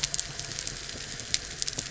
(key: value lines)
label: anthrophony, boat engine
recorder: SoundTrap 300